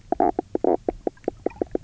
{"label": "biophony, knock croak", "recorder": "SoundTrap 300"}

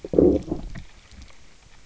{"label": "biophony, low growl", "recorder": "SoundTrap 300"}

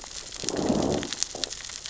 {"label": "biophony, growl", "recorder": "SoundTrap 600 or HydroMoth"}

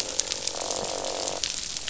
{"label": "biophony, croak", "recorder": "SoundTrap 500"}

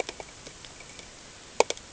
{"label": "ambient", "recorder": "HydroMoth"}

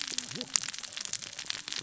{"label": "biophony, cascading saw", "recorder": "SoundTrap 600 or HydroMoth"}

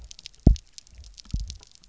{"label": "biophony, double pulse", "recorder": "SoundTrap 300"}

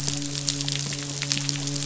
{"label": "biophony, midshipman", "recorder": "SoundTrap 500"}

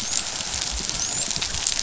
{"label": "biophony, dolphin", "recorder": "SoundTrap 500"}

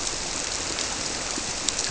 {"label": "biophony", "recorder": "SoundTrap 300"}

